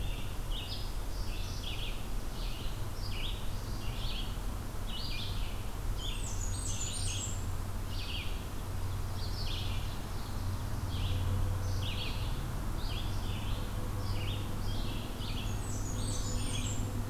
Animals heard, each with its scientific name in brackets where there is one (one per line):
Red-eyed Vireo (Vireo olivaceus)
Blackburnian Warbler (Setophaga fusca)